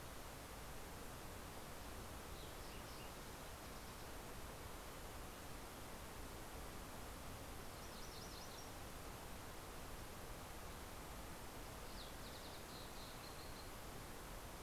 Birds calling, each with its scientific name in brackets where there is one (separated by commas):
Green-tailed Towhee (Pipilo chlorurus), Fox Sparrow (Passerella iliaca), MacGillivray's Warbler (Geothlypis tolmiei)